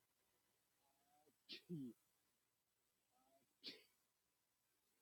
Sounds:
Sneeze